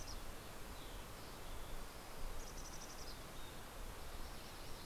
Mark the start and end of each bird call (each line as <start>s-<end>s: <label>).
0.0s-4.9s: Mountain Chickadee (Poecile gambeli)
3.4s-4.9s: Yellow-rumped Warbler (Setophaga coronata)